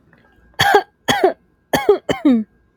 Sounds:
Cough